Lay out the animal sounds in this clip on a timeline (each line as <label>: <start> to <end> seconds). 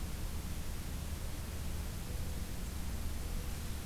Mourning Dove (Zenaida macroura): 2.0 to 3.8 seconds